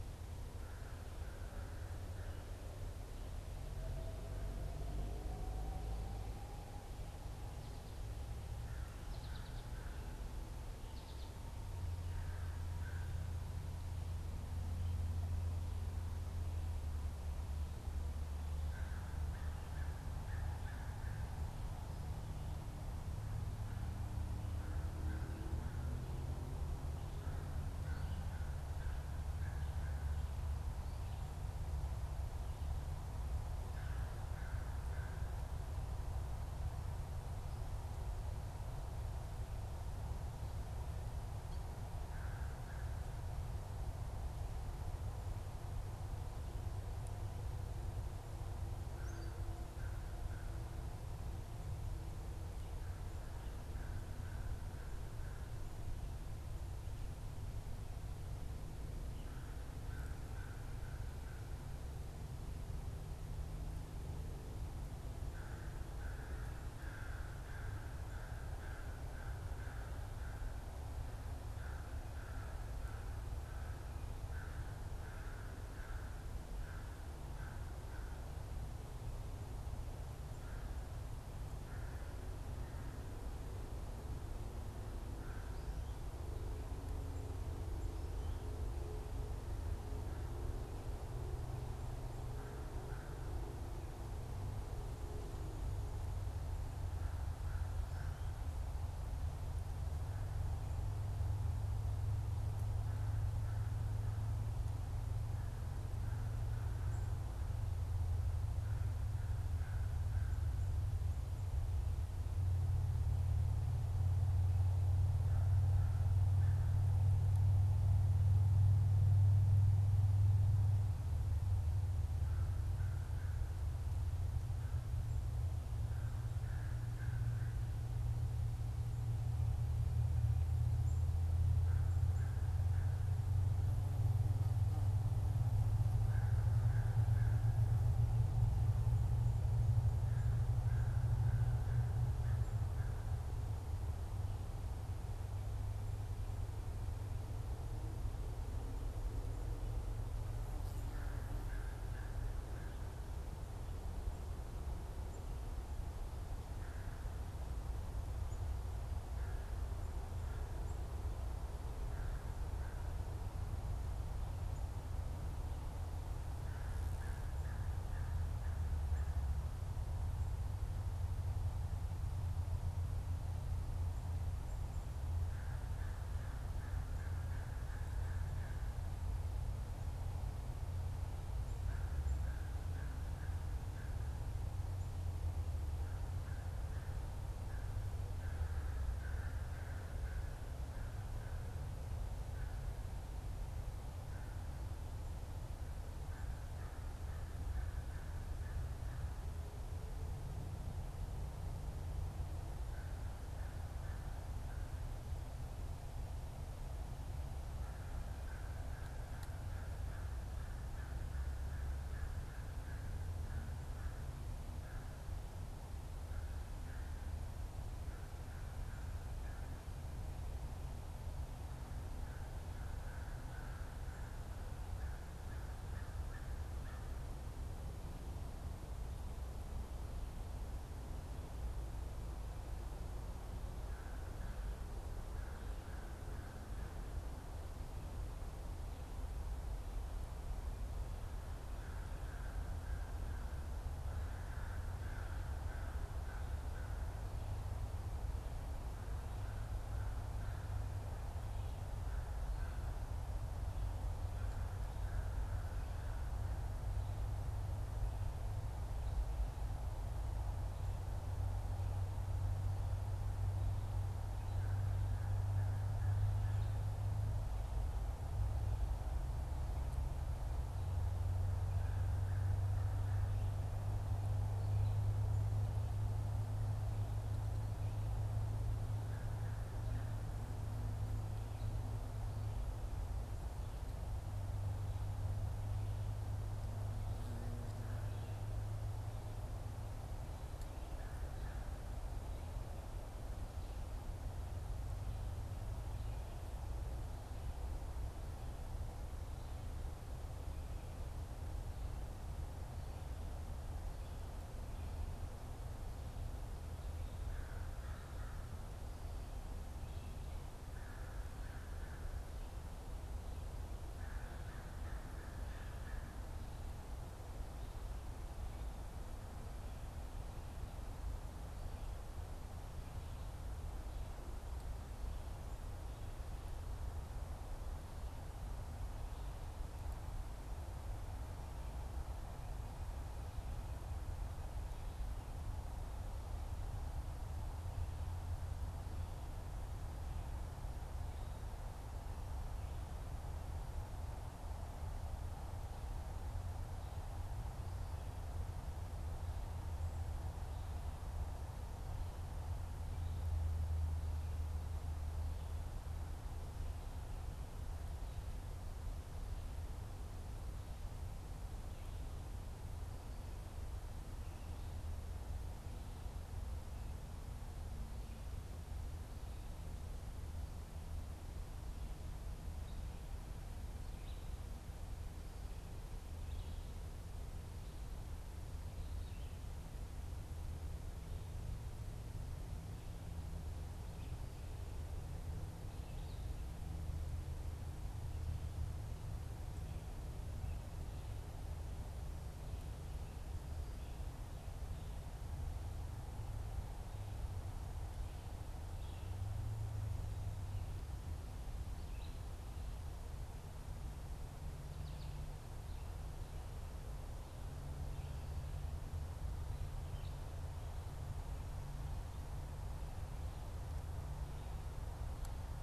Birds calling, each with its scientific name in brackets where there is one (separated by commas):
American Crow (Corvus brachyrhynchos), unidentified bird, Black-capped Chickadee (Poecile atricapillus), Red-eyed Vireo (Vireo olivaceus), American Goldfinch (Spinus tristis)